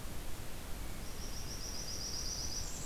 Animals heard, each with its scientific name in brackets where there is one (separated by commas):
Blackburnian Warbler (Setophaga fusca)